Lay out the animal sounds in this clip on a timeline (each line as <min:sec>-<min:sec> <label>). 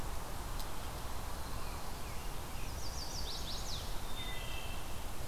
0:02.5-0:03.9 Chestnut-sided Warbler (Setophaga pensylvanica)
0:03.8-0:05.2 Wood Thrush (Hylocichla mustelina)